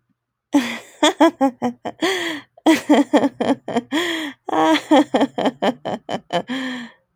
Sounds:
Laughter